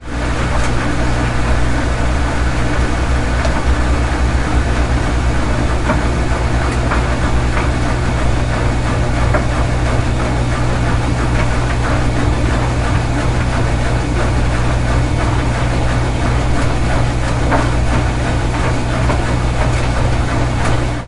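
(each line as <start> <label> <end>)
0.0 A washing machine hums loudly and steadily with a vibrating sound. 21.1
12.2 A washing machine drum spins loudly and rhythmically, gradually increasing in speed. 21.1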